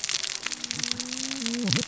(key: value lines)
label: biophony, cascading saw
recorder: SoundTrap 600 or HydroMoth